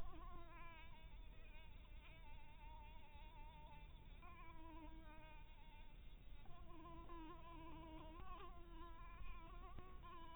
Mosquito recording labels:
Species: Anopheles barbirostris; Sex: female; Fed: blood-fed; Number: one; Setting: cup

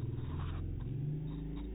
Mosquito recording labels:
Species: no mosquito; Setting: cup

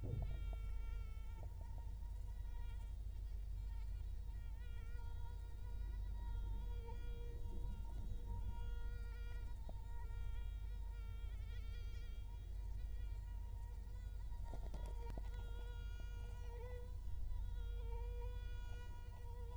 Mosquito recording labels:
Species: Culex quinquefasciatus; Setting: cup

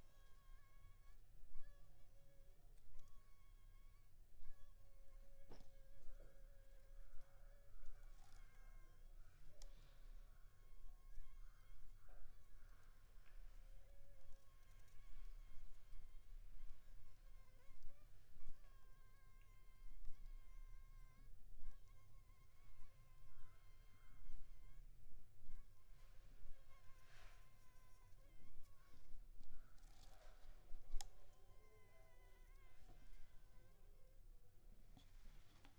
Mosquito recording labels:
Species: Anopheles funestus s.s.; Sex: female; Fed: unfed; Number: one; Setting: cup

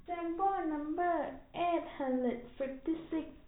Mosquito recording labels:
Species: no mosquito; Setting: cup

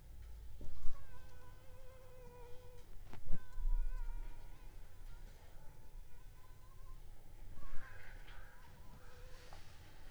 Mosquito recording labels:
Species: Anopheles funestus s.s.; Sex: female; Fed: unfed; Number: one; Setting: cup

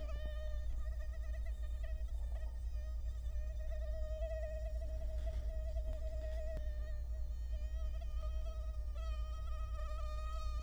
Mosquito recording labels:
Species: Culex quinquefasciatus; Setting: cup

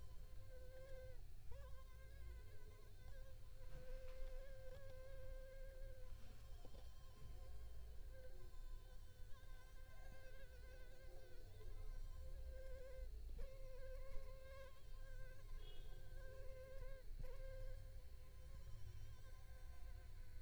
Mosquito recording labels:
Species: Anopheles arabiensis; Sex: female; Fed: unfed; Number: one; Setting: cup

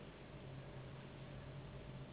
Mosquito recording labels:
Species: Anopheles gambiae s.s.; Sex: female; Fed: unfed; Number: one; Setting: insect culture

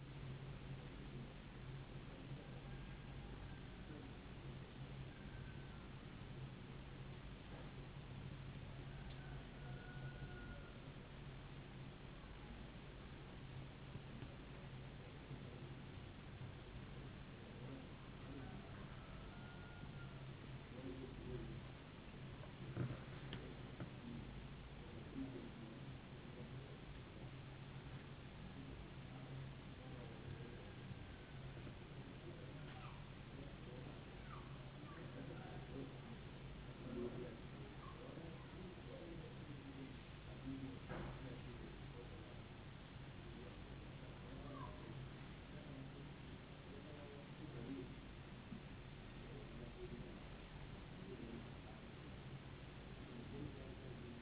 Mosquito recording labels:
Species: no mosquito; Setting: insect culture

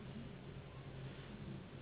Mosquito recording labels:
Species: Anopheles gambiae s.s.; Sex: female; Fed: unfed; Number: one; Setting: insect culture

